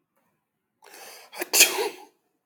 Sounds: Sneeze